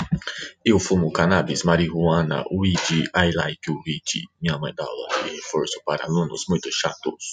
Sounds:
Sniff